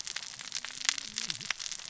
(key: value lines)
label: biophony, cascading saw
recorder: SoundTrap 600 or HydroMoth